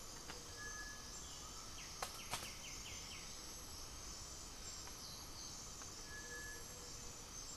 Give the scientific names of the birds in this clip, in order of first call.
Pachyramphus polychopterus, Crypturellus cinereus, Leptotila rufaxilla, Crypturellus undulatus, unidentified bird